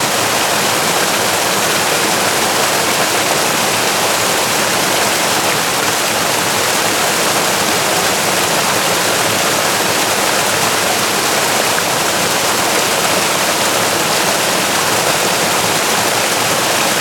Are people fishing?
no